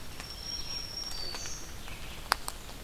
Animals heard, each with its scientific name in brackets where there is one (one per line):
Black-throated Green Warbler (Setophaga virens)
Red-eyed Vireo (Vireo olivaceus)